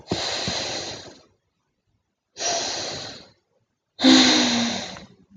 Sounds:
Sigh